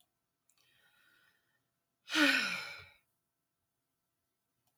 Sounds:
Sigh